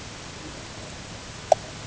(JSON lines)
{"label": "ambient", "recorder": "HydroMoth"}